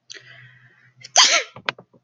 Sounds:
Sneeze